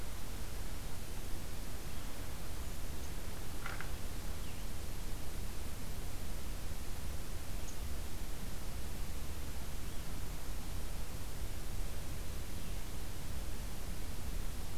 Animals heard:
forest ambience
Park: Acadia National Park